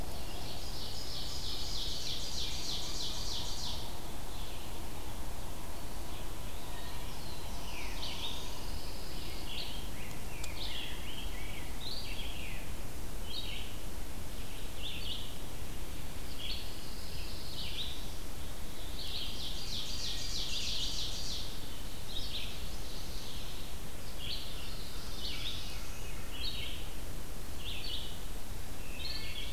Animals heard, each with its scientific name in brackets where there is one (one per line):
Wood Thrush (Hylocichla mustelina)
Red-eyed Vireo (Vireo olivaceus)
Black-throated Blue Warbler (Setophaga caerulescens)
Pine Warbler (Setophaga pinus)
Veery (Catharus fuscescens)
Rose-breasted Grosbeak (Pheucticus ludovicianus)
Ovenbird (Seiurus aurocapilla)